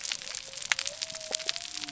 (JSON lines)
{"label": "biophony", "recorder": "SoundTrap 300"}